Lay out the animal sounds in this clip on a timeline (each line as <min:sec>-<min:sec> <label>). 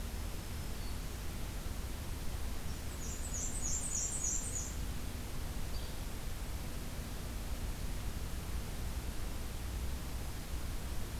0:00.0-0:01.1 Black-throated Green Warbler (Setophaga virens)
0:02.8-0:04.8 Black-and-white Warbler (Mniotilta varia)
0:05.7-0:06.0 Yellow-bellied Flycatcher (Empidonax flaviventris)